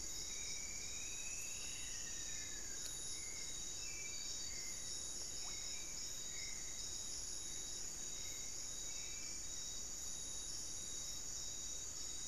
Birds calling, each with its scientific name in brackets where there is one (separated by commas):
Amazonian Barred-Woodcreeper (Dendrocolaptes certhia), Striped Woodcreeper (Xiphorhynchus obsoletus), unidentified bird, Hauxwell's Thrush (Turdus hauxwelli)